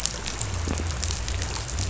{"label": "biophony", "recorder": "SoundTrap 500"}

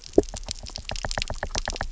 {"label": "biophony, knock", "recorder": "SoundTrap 300"}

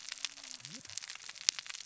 {"label": "biophony, cascading saw", "recorder": "SoundTrap 600 or HydroMoth"}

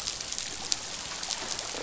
{"label": "biophony, croak", "recorder": "SoundTrap 500"}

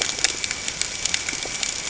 {"label": "ambient", "recorder": "HydroMoth"}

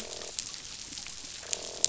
{"label": "biophony, croak", "recorder": "SoundTrap 500"}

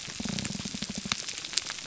{"label": "biophony", "recorder": "SoundTrap 300"}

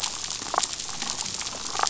{"label": "biophony, damselfish", "recorder": "SoundTrap 500"}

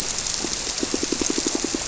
{"label": "biophony, squirrelfish (Holocentrus)", "recorder": "SoundTrap 300"}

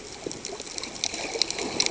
{"label": "ambient", "recorder": "HydroMoth"}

